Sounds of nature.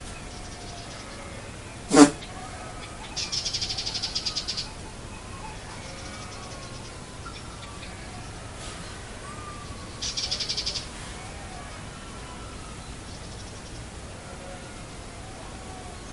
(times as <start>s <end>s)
0.0s 1.9s